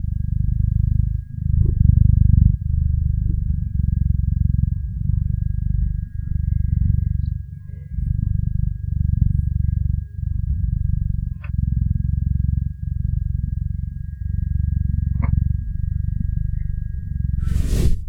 Does the person cough?
no